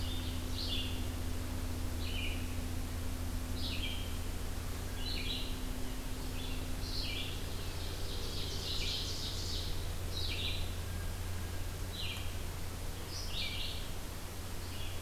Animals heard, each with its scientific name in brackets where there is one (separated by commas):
Red-eyed Vireo (Vireo olivaceus), Ovenbird (Seiurus aurocapilla)